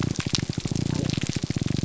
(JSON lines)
{"label": "biophony", "recorder": "SoundTrap 300"}